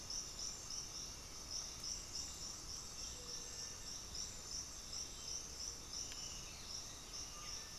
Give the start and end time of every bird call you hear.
[0.69, 7.78] unidentified bird
[4.99, 7.78] Black-spotted Bare-eye (Phlegopsis nigromaculata)
[7.09, 7.78] Undulated Tinamou (Crypturellus undulatus)

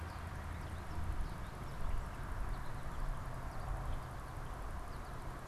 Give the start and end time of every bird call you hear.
[0.00, 5.47] American Goldfinch (Spinus tristis)

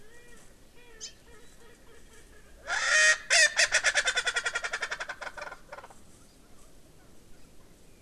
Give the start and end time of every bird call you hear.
[0.00, 5.90] Erckel's Francolin (Pternistis erckelii)
[1.00, 1.20] Hawaii Amakihi (Chlorodrepanis virens)

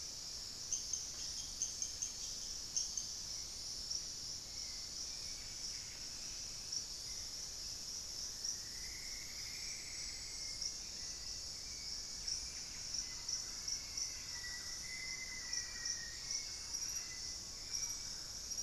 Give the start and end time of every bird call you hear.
[3.91, 18.11] Hauxwell's Thrush (Turdus hauxwelli)
[5.11, 6.41] Buff-breasted Wren (Cantorchilus leucotis)
[8.11, 10.71] Plumbeous Antbird (Myrmelastes hyperythrus)
[11.81, 13.11] Buff-breasted Wren (Cantorchilus leucotis)
[12.41, 18.61] Thrush-like Wren (Campylorhynchus turdinus)
[12.61, 16.41] Black-faced Antthrush (Formicarius analis)

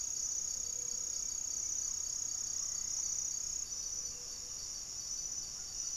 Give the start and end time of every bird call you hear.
[0.00, 5.96] Gray-fronted Dove (Leptotila rufaxilla)
[0.00, 5.96] Great Antshrike (Taraba major)
[1.98, 4.18] unidentified bird

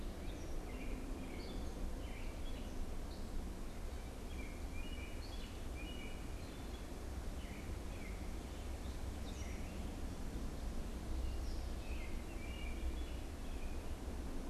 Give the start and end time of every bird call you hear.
[0.00, 14.49] American Robin (Turdus migratorius)
[0.06, 3.46] Gray Catbird (Dumetella carolinensis)
[8.86, 11.66] Gray Catbird (Dumetella carolinensis)

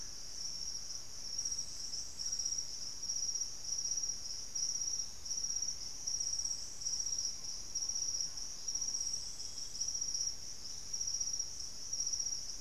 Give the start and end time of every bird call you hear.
[5.83, 9.33] Ferruginous Pygmy-Owl (Glaucidium brasilianum)
[9.03, 10.23] unidentified bird

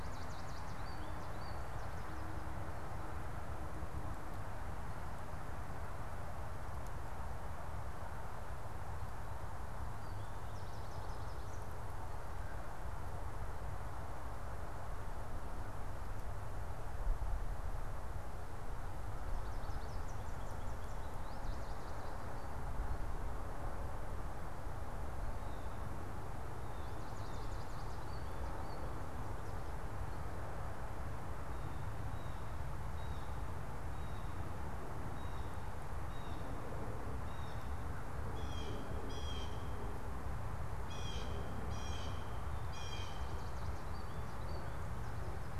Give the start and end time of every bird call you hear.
[0.00, 1.80] American Goldfinch (Spinus tristis)
[9.90, 11.80] American Goldfinch (Spinus tristis)
[26.50, 29.20] American Goldfinch (Spinus tristis)
[31.80, 43.70] Blue Jay (Cyanocitta cristata)
[43.00, 44.80] American Goldfinch (Spinus tristis)

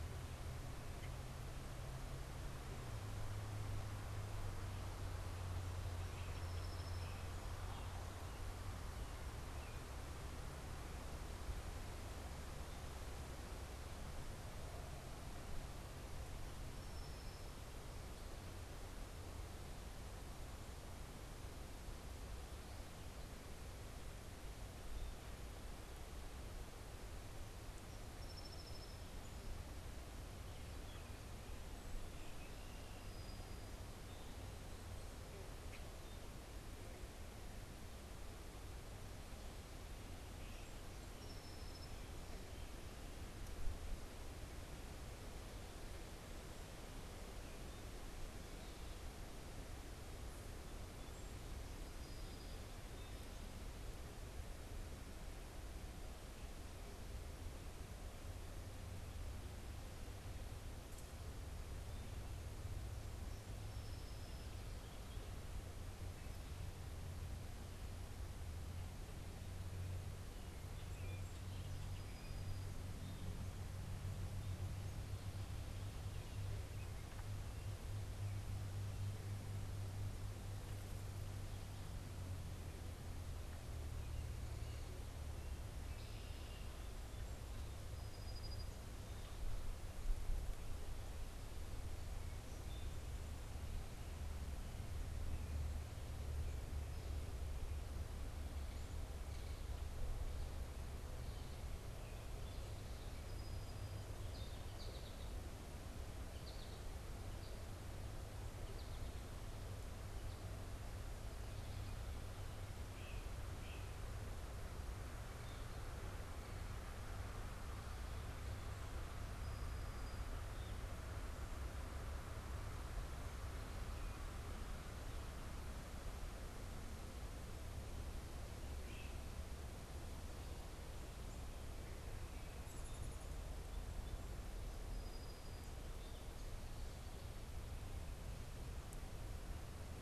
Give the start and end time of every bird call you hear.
[5.61, 7.71] Song Sparrow (Melospiza melodia)
[27.31, 29.51] Song Sparrow (Melospiza melodia)
[31.91, 33.01] Red-winged Blackbird (Agelaius phoeniceus)
[40.41, 42.41] Song Sparrow (Melospiza melodia)
[63.21, 65.11] Song Sparrow (Melospiza melodia)
[71.61, 73.11] Song Sparrow (Melospiza melodia)
[87.61, 89.41] Song Sparrow (Melospiza melodia)
[102.71, 104.31] Song Sparrow (Melospiza melodia)
[104.21, 106.91] American Goldfinch (Spinus tristis)
[112.71, 114.01] Great Crested Flycatcher (Myiarchus crinitus)
[128.61, 129.31] Great Crested Flycatcher (Myiarchus crinitus)
[134.61, 136.01] Song Sparrow (Melospiza melodia)

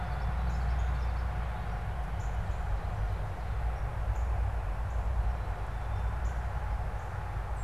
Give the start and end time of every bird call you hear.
[0.00, 1.50] Common Yellowthroat (Geothlypis trichas)
[1.80, 7.63] Northern Cardinal (Cardinalis cardinalis)

